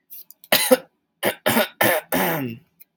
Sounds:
Throat clearing